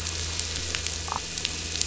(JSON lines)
{"label": "anthrophony, boat engine", "recorder": "SoundTrap 500"}